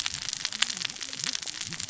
{"label": "biophony, cascading saw", "recorder": "SoundTrap 600 or HydroMoth"}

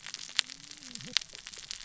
{"label": "biophony, cascading saw", "recorder": "SoundTrap 600 or HydroMoth"}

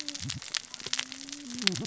{"label": "biophony, cascading saw", "recorder": "SoundTrap 600 or HydroMoth"}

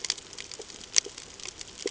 {"label": "ambient", "recorder": "HydroMoth"}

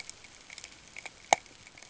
{"label": "ambient", "recorder": "HydroMoth"}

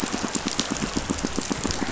{"label": "biophony, pulse", "recorder": "SoundTrap 500"}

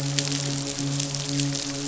{"label": "biophony, midshipman", "recorder": "SoundTrap 500"}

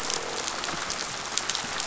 {"label": "biophony", "recorder": "SoundTrap 500"}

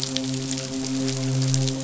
{"label": "biophony, midshipman", "recorder": "SoundTrap 500"}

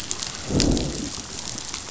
{"label": "biophony, growl", "recorder": "SoundTrap 500"}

